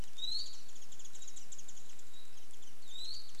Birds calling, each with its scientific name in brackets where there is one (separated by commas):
Warbling White-eye (Zosterops japonicus), Iiwi (Drepanis coccinea)